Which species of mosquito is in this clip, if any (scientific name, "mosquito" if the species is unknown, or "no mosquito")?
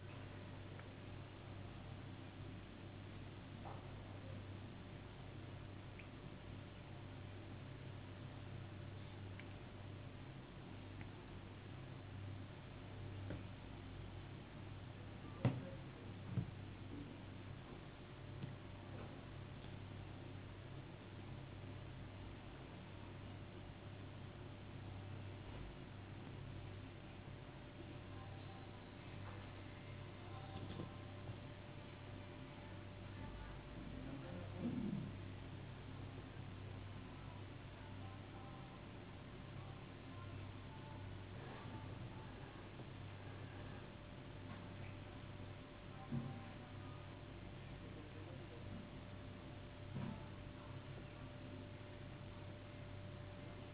no mosquito